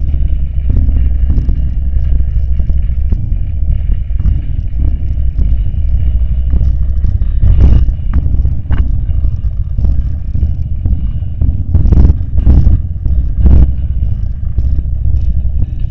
are people talking?
no